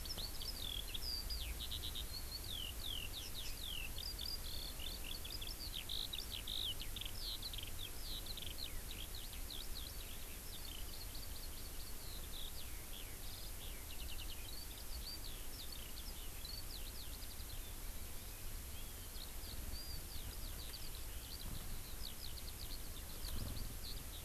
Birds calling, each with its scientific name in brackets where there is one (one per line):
Hawaii Amakihi (Chlorodrepanis virens)
Eurasian Skylark (Alauda arvensis)